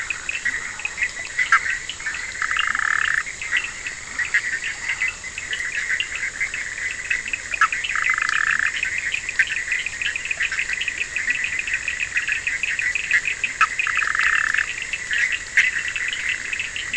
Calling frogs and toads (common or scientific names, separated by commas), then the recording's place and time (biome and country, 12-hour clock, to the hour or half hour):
Burmeister's tree frog, Bischoff's tree frog, Cochran's lime tree frog, Leptodactylus latrans, two-colored oval frog
Atlantic Forest, Brazil, 1:30am